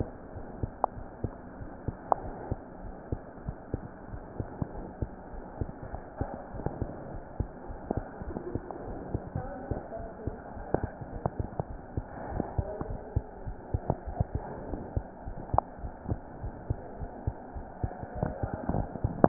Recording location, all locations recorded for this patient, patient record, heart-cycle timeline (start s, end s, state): aortic valve (AV)
aortic valve (AV)+pulmonary valve (PV)+tricuspid valve (TV)+mitral valve (MV)
#Age: Child
#Sex: Male
#Height: 84.0 cm
#Weight: 11.2 kg
#Pregnancy status: False
#Murmur: Absent
#Murmur locations: nan
#Most audible location: nan
#Systolic murmur timing: nan
#Systolic murmur shape: nan
#Systolic murmur grading: nan
#Systolic murmur pitch: nan
#Systolic murmur quality: nan
#Diastolic murmur timing: nan
#Diastolic murmur shape: nan
#Diastolic murmur grading: nan
#Diastolic murmur pitch: nan
#Diastolic murmur quality: nan
#Outcome: Normal
#Campaign: 2015 screening campaign
0.00	0.14	unannotated
0.14	0.34	diastole
0.34	0.44	S1
0.44	0.60	systole
0.60	0.74	S2
0.74	0.96	diastole
0.96	1.06	S1
1.06	1.20	systole
1.20	1.34	S2
1.34	1.58	diastole
1.58	1.68	S1
1.68	1.84	systole
1.84	1.98	S2
1.98	2.20	diastole
2.20	2.34	S1
2.34	2.48	systole
2.48	2.60	S2
2.60	2.82	diastole
2.82	2.94	S1
2.94	3.08	systole
3.08	3.22	S2
3.22	3.46	diastole
3.46	3.56	S1
3.56	3.72	systole
3.72	3.81	S2
3.81	4.10	diastole
4.10	4.22	S1
4.22	4.36	systole
4.36	4.50	S2
4.50	4.74	diastole
4.74	4.86	S1
4.86	4.98	systole
4.98	5.10	S2
5.10	5.32	diastole
5.32	5.44	S1
5.44	5.58	systole
5.58	5.70	S2
5.70	5.92	diastole
5.92	6.02	S1
6.02	6.20	systole
6.20	6.30	S2
6.30	6.52	diastole
6.52	6.64	S1
6.64	6.78	systole
6.78	6.90	S2
6.90	7.10	diastole
7.10	7.22	S1
7.22	7.36	systole
7.36	7.48	S2
7.48	7.68	diastole
7.68	7.80	S1
7.80	7.94	systole
7.94	8.06	S2
8.06	8.19	diastole
8.19	8.36	S1
8.36	8.48	systole
8.48	8.64	S2
8.64	8.84	diastole
8.84	8.98	S1
8.98	9.08	systole
9.08	9.22	S2
9.22	9.38	diastole
9.38	9.52	S1
9.52	9.68	systole
9.68	9.82	S2
9.82	10.00	diastole
10.00	10.08	S1
10.08	10.24	systole
10.24	10.36	S2
10.36	10.56	diastole
10.56	10.66	S1
10.66	10.82	systole
10.82	10.92	S2
10.92	11.10	diastole
11.10	11.22	S1
11.22	11.36	systole
11.36	11.48	S2
11.48	11.70	diastole
11.70	11.80	S1
11.80	11.94	systole
11.94	12.06	S2
12.06	12.30	diastole
12.30	12.48	S1
12.48	12.56	systole
12.56	12.68	S2
12.68	12.88	diastole
12.88	13.00	S1
13.00	13.12	systole
13.12	13.26	S2
13.26	13.44	diastole
13.44	13.56	S1
13.56	13.71	systole
13.71	13.82	S2
13.82	14.06	diastole
14.06	14.13	S1
14.13	14.33	systole
14.33	14.46	S2
14.46	14.68	diastole
14.68	14.84	S1
14.84	14.94	systole
14.94	15.06	S2
15.06	15.26	diastole
15.26	15.36	S1
15.36	15.50	systole
15.50	15.64	S2
15.64	15.82	diastole
15.82	15.94	S1
15.94	16.06	systole
16.06	16.20	S2
16.20	16.42	diastole
16.42	16.54	S1
16.54	16.66	systole
16.66	16.80	S2
16.80	17.00	diastole
17.00	17.10	S1
17.10	17.26	systole
17.26	17.36	S2
17.36	17.54	diastole
17.54	17.64	S1
17.64	17.80	systole
17.80	17.94	S2
17.94	18.14	diastole
18.14	18.29	S1
18.29	18.40	systole
18.40	18.52	S2
18.52	18.71	diastole
18.71	19.28	unannotated